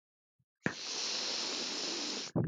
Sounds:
Sniff